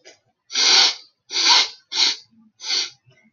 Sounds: Sniff